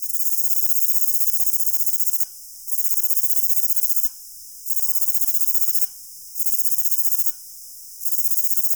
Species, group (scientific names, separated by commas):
Rhacocleis lithoscirtetes, Orthoptera